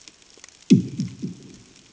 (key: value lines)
label: anthrophony, bomb
recorder: HydroMoth